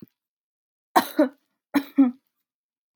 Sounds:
Cough